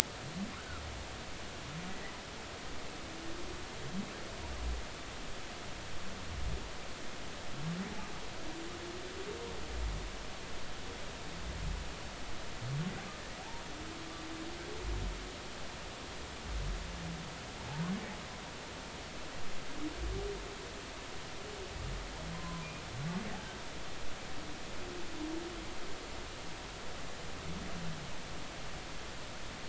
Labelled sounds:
0.6	0.8	humpback whale, 1.2 to 1.6 kHz
17.6	17.9	humpback whale, 0.80 to 1.1 kHz
22.3	22.7	humpback whale, 0.96 to 1.1 kHz

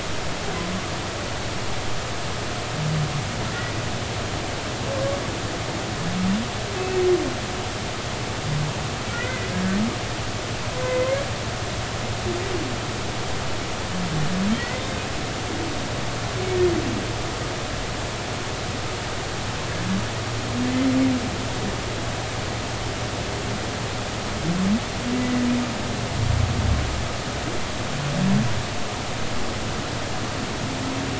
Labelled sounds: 9.1	9.5	humpback whale, 1.3 to 2.1 kHz
14.6	14.8	humpback whale, 1.8 to 2.1 kHz
25.2	25.4	humpback whale, 1.9 to 2.1 kHz

